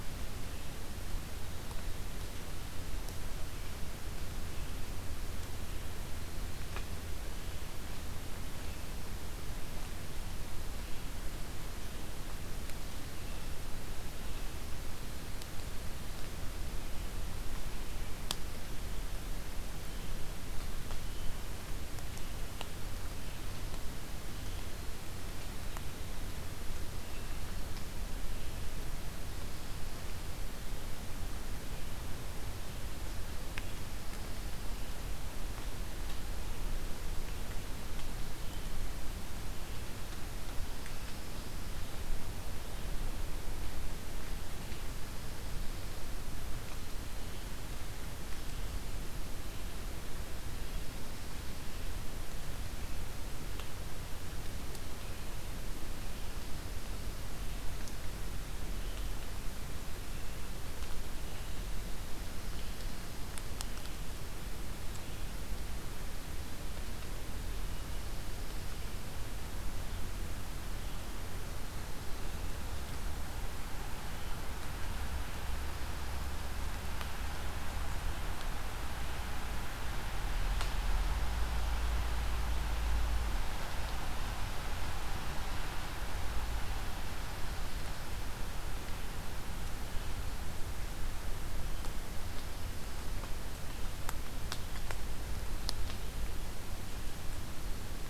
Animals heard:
forest ambience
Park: Acadia National Park